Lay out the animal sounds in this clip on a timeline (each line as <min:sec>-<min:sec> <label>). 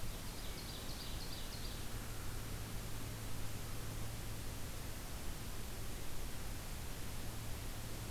0:00.0-0:01.9 Ovenbird (Seiurus aurocapilla)
0:01.8-0:03.0 American Crow (Corvus brachyrhynchos)